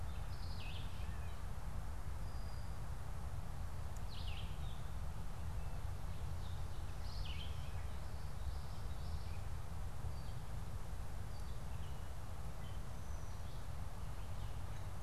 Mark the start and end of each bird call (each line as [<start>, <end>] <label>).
[0.00, 7.80] Red-eyed Vireo (Vireo olivaceus)
[2.00, 2.80] Brown-headed Cowbird (Molothrus ater)
[8.70, 13.50] Gray Catbird (Dumetella carolinensis)